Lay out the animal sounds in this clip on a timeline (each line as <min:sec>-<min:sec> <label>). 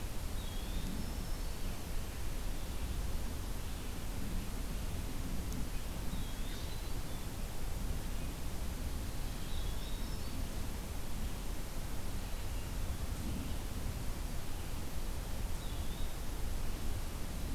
0:00.2-0:01.1 Eastern Wood-Pewee (Contopus virens)
0:00.5-0:01.9 Black-throated Green Warbler (Setophaga virens)
0:05.8-0:07.1 Eastern Wood-Pewee (Contopus virens)
0:09.2-0:10.9 Black-throated Green Warbler (Setophaga virens)
0:09.3-0:10.2 Eastern Wood-Pewee (Contopus virens)
0:15.4-0:16.2 Eastern Wood-Pewee (Contopus virens)